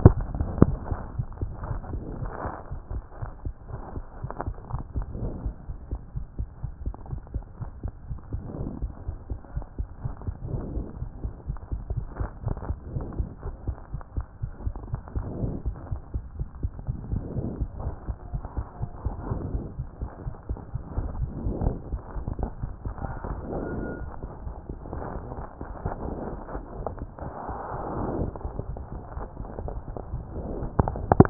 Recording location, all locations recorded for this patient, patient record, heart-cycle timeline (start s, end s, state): aortic valve (AV)
aortic valve (AV)+mitral valve (MV)
#Age: Child
#Sex: Male
#Height: 109.0 cm
#Weight: 19.1 kg
#Pregnancy status: False
#Murmur: Absent
#Murmur locations: nan
#Most audible location: nan
#Systolic murmur timing: nan
#Systolic murmur shape: nan
#Systolic murmur grading: nan
#Systolic murmur pitch: nan
#Systolic murmur quality: nan
#Diastolic murmur timing: nan
#Diastolic murmur shape: nan
#Diastolic murmur grading: nan
#Diastolic murmur pitch: nan
#Diastolic murmur quality: nan
#Outcome: Normal
#Campaign: 2014 screening campaign
0.08	0.26	S1
0.26	0.34	systole
0.34	0.48	S2
0.48	0.62	diastole
0.62	0.80	S1
0.80	0.88	systole
0.88	1.00	S2
1.00	1.14	diastole
1.14	1.28	S1
1.28	1.38	systole
1.38	1.52	S2
1.52	1.68	diastole
1.68	1.82	S1
1.82	1.90	systole
1.90	2.04	S2
2.04	2.20	diastole
2.20	2.34	S1
2.34	2.46	systole
2.46	2.52	S2
2.52	2.70	diastole
2.70	2.80	S1
2.80	2.90	systole
2.90	3.04	S2
3.04	3.22	diastole
3.22	3.32	S1
3.32	3.44	systole
3.44	3.52	S2
3.52	3.70	diastole
3.70	3.82	S1
3.82	3.96	systole
3.96	4.04	S2
4.04	4.22	diastole
4.22	4.32	S1
4.32	4.44	systole
4.44	4.54	S2
4.54	4.72	diastole
4.72	4.86	S1
4.86	4.94	systole
4.94	5.06	S2
5.06	5.18	diastole
5.18	5.34	S1
5.34	5.42	systole
5.42	5.54	S2
5.54	5.68	diastole
5.68	5.76	S1
5.76	5.88	systole
5.88	6.00	S2
6.00	6.16	diastole
6.16	6.26	S1
6.26	6.38	systole
6.38	6.48	S2
6.48	6.64	diastole
6.64	6.74	S1
6.74	6.82	systole
6.82	6.94	S2
6.94	7.10	diastole
7.10	7.22	S1
7.22	7.34	systole
7.34	7.46	S2
7.46	7.62	diastole
7.62	7.72	S1
7.72	7.80	systole
7.80	7.90	S2
7.90	8.08	diastole
8.08	8.18	S1
8.18	8.32	systole
8.32	8.42	S2
8.42	8.58	diastole
8.58	8.72	S1
8.72	8.80	systole
8.80	8.90	S2
8.90	9.06	diastole
9.06	9.18	S1
9.18	9.30	systole
9.30	9.38	S2
9.38	9.54	diastole
9.54	9.64	S1
9.64	9.78	systole
9.78	9.88	S2
9.88	10.04	diastole
10.04	10.14	S1
10.14	10.26	systole
10.26	10.36	S2
10.36	10.52	diastole
10.52	10.66	S1
10.66	10.74	systole
10.74	10.86	S2
10.86	11.00	diastole
11.00	11.08	S1
11.08	11.22	systole
11.22	11.32	S2
11.32	11.48	diastole
11.48	11.58	S1
11.58	11.68	systole
11.68	11.82	S2
11.82	11.96	diastole
11.96	12.10	S1
12.10	12.18	systole
12.18	12.30	S2
12.30	12.46	diastole
12.46	12.58	S1
12.58	12.68	systole
12.68	12.78	S2
12.78	12.94	diastole
12.94	13.08	S1
13.08	13.18	systole
13.18	13.28	S2
13.28	13.46	diastole
13.46	13.54	S1
13.54	13.66	systole
13.66	13.76	S2
13.76	13.94	diastole
13.94	14.02	S1
14.02	14.16	systole
14.16	14.24	S2
14.24	14.44	diastole
14.44	14.52	S1
14.52	14.64	systole
14.64	14.80	S2
14.80	14.92	diastole
14.92	15.02	S1
15.02	15.14	systole
15.14	15.28	S2
15.28	15.40	diastole
15.40	15.56	S1
15.56	15.64	systole
15.64	15.76	S2
15.76	15.90	diastole
15.90	16.00	S1
16.00	16.14	systole
16.14	16.24	S2
16.24	16.38	diastole
16.38	16.48	S1
16.48	16.60	systole
16.60	16.72	S2
16.72	16.88	diastole
16.88	16.98	S1
16.98	17.10	systole
17.10	17.24	S2
17.24	17.36	diastole
17.36	17.52	S1
17.52	17.60	systole
17.60	17.72	S2
17.72	17.84	diastole
17.84	17.94	S1
17.94	18.08	systole
18.08	18.18	S2
18.18	18.32	diastole
18.32	18.42	S1
18.42	18.56	systole
18.56	18.66	S2
18.66	18.82	diastole
18.82	18.92	S1
18.92	19.04	systole
19.04	19.16	S2
19.16	19.28	diastole
19.28	19.44	S1
19.44	19.52	systole
19.52	19.66	S2
19.66	19.80	diastole
19.80	19.88	S1
19.88	20.02	systole
20.02	20.10	S2
20.10	20.26	diastole
20.26	20.36	S1
20.36	20.48	systole
20.48	20.58	S2
20.58	20.74	diastole
20.74	20.84	S1
20.84	20.96	systole
20.96	21.06	S2
21.06	21.18	diastole
21.18	21.32	S1
21.32	21.38	systole
21.38	21.48	S2
21.48	21.62	diastole
21.62	21.80	S1
21.80	21.92	systole
21.92	22.02	S2
22.02	22.16	diastole
22.16	22.26	S1
22.26	22.38	systole
22.38	22.50	S2
22.50	22.62	diastole
22.62	22.72	S1
22.72	22.84	systole
22.84	22.96	S2
22.96	23.08	diastole
23.08	23.20	S1
23.20	23.30	systole
23.30	23.40	S2
23.40	23.54	diastole
23.54	23.68	S1
23.68	23.76	systole
23.76	23.88	S2
23.88	24.02	diastole
24.02	24.12	S1
24.12	24.22	systole
24.22	24.30	S2
24.30	24.46	diastole
24.46	24.58	S1
24.58	24.70	systole
24.70	24.78	S2
24.78	24.92	diastole
24.92	25.02	S1
25.02	25.14	systole
25.14	25.24	S2
25.24	25.36	diastole
25.36	25.44	S1
25.44	25.60	systole
25.60	25.68	S2
25.68	25.84	diastole
25.84	25.94	S1
25.94	26.04	systole
26.04	26.18	S2
26.18	26.32	diastole
26.32	26.42	S1
26.42	26.54	systole
26.54	26.64	S2
26.64	26.78	diastole
26.78	26.88	S1
26.88	27.00	systole
27.00	27.08	S2
27.08	27.22	diastole
27.22	27.32	S1
27.32	27.48	systole
27.48	27.56	S2
27.56	27.74	diastole
27.74	27.84	S1
27.84	27.96	systole
27.96	28.08	S2
28.08	28.20	diastole
28.20	28.34	S1
28.34	28.40	systole
28.40	28.52	S2
28.52	28.68	diastole
28.68	28.82	S1
28.82	28.92	systole
28.92	29.02	S2
29.02	29.16	diastole
29.16	29.28	S1
29.28	29.40	systole
29.40	29.48	S2
29.48	29.60	diastole
29.60	29.76	S1
29.76	29.88	systole
29.88	29.96	S2
29.96	30.12	diastole
30.12	30.24	S1
30.24	30.34	systole
30.34	30.46	S2
30.46	30.60	diastole
30.60	30.72	S1
30.72	30.78	systole
30.78	30.88	S2
30.88	31.00	diastole
31.00	31.10	S1
31.10	31.12	systole
31.12	31.28	S2
31.28	31.30	diastole